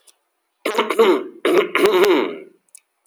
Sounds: Throat clearing